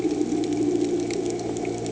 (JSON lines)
{"label": "anthrophony, boat engine", "recorder": "HydroMoth"}